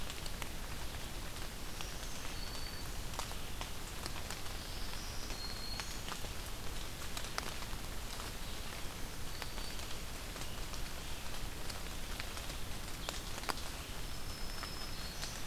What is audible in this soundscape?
Black-throated Green Warbler